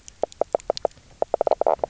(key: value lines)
label: biophony, knock croak
recorder: SoundTrap 300